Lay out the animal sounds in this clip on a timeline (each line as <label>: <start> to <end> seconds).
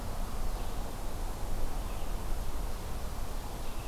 Red-eyed Vireo (Vireo olivaceus): 0.2 to 3.9 seconds